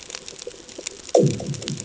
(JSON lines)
{"label": "anthrophony, bomb", "recorder": "HydroMoth"}